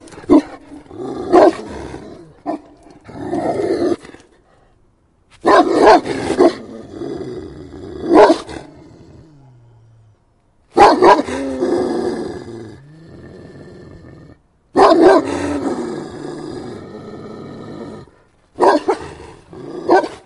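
A big dog growls. 0.0 - 4.3
A large dog is barking furiously. 0.3 - 1.6
A large dog is barking furiously. 5.4 - 6.6
A big dog growls. 6.0 - 10.1
A large dog is barking furiously. 8.0 - 8.7
A large dog is barking furiously. 10.7 - 11.3
A big dog growls. 11.2 - 14.4
A large dog is barking furiously. 14.7 - 15.3
A big dog growls. 15.2 - 18.1
A large dog is barking furiously. 18.5 - 20.2
A big dog growls. 18.8 - 20.3

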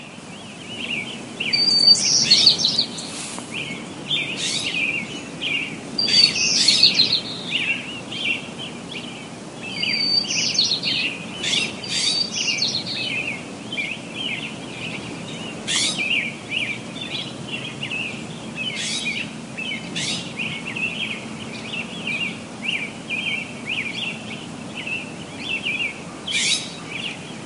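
Birds chirping and screeching irregularly. 0.0 - 27.5

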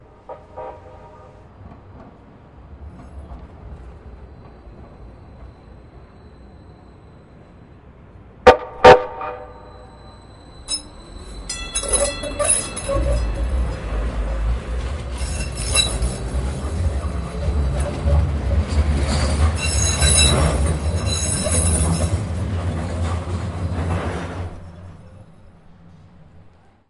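Distant train horn and an approaching light-rail train with squeaking wheels. 0.0 - 8.4
A loud light-rail train horn sounds with squeaking wheels approaching. 8.4 - 10.3
A light-rail train passes by with a ringing bell and squeaking wheels. 10.2 - 21.6
A light-rail train with squeaking wheels moves away. 21.6 - 26.9

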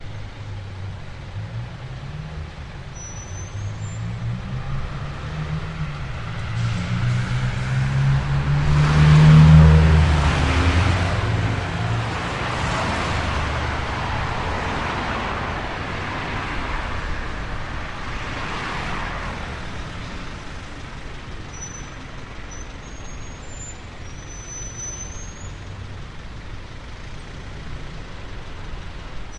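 An engine, like a truck, approaches and then moves away, with the sound gradually increasing and then decreasing. 0.2 - 29.3

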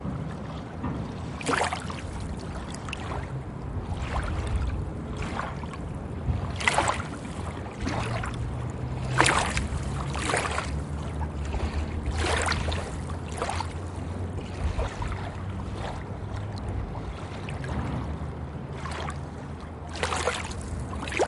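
White noise with quiet wind sounds. 0.0 - 21.3
Water flowing quietly. 0.0 - 21.3
A clear water bloop. 1.1 - 2.3
A clear water bloop. 6.4 - 7.3
Clear water bloop sounds occur twice. 8.9 - 11.1
A clear water bloop. 11.9 - 14.0
A clear water bloop. 19.7 - 20.8

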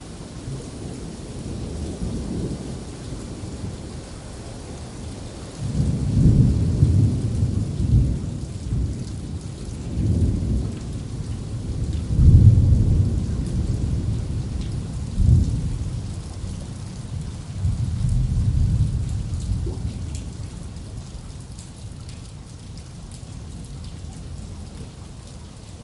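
Consistent rain sounds outside. 0.0 - 25.8
Repeating thunder sounds decreasing in volume in the distance. 5.6 - 9.2
Heavy storm with thunder in the distance. 9.8 - 10.9
Repeating thunder sounds decreasing in volume in the distance. 12.0 - 25.8

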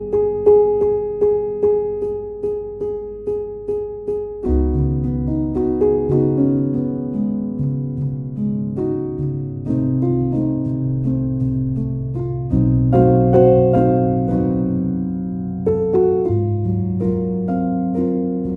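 A piano plays slow jazz music. 0.0 - 18.6

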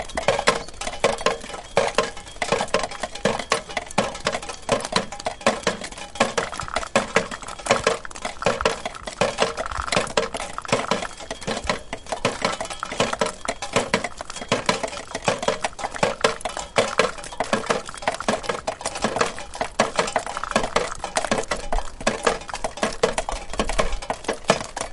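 Something repeatedly falls or hits a metallic surface. 0.1 - 6.4
A liquid pouring onto metal. 6.6 - 11.9
Something repeatedly falls or hits a metallic surface with pauses. 6.6 - 11.9
A liquid pours quietly onto a metallic surface in the distance. 12.7 - 24.9
Something repeatedly falls or hits a metallic surface. 12.7 - 24.9

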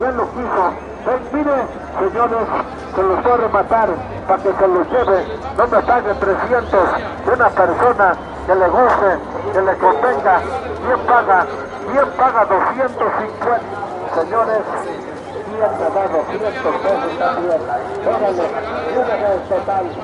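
A constant lively hum of a busy marketplace echoing softly outdoors. 0.0 - 20.0
A man is speaking Spanish through a microphone outdoors. 0.0 - 20.0
Multiple people are conversing outdoors. 4.6 - 20.0

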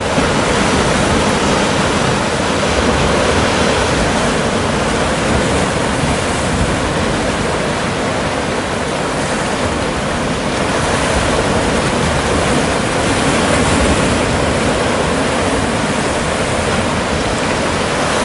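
Water crashes steadily onto the surf. 0.0 - 18.2

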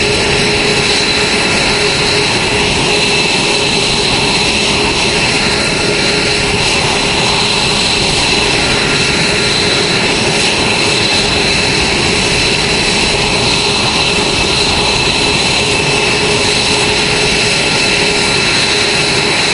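Heavy engine noise repeatedly outdoors. 0.0 - 19.5

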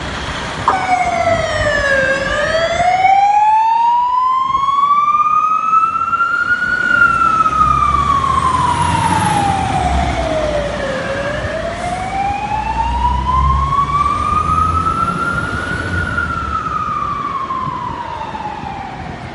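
An ambulance siren loud at first, gradually fading as it moves away. 0.0 - 19.3

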